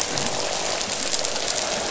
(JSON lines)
{"label": "biophony, croak", "recorder": "SoundTrap 500"}